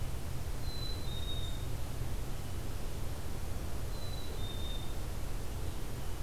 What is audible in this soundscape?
Black-capped Chickadee